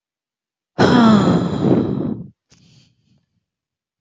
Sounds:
Sigh